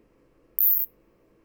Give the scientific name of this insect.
Isophya plevnensis